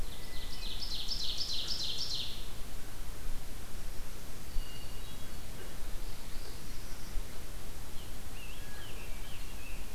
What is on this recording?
Ovenbird, Black-throated Green Warbler, Hermit Thrush, Northern Parula, Scarlet Tanager